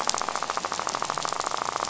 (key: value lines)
label: biophony, rattle
recorder: SoundTrap 500